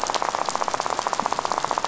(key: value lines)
label: biophony, rattle
recorder: SoundTrap 500